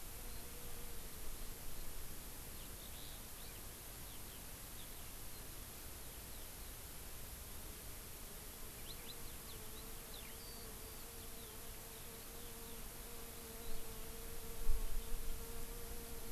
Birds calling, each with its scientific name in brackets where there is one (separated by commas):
Eurasian Skylark (Alauda arvensis)